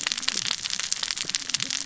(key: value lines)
label: biophony, cascading saw
recorder: SoundTrap 600 or HydroMoth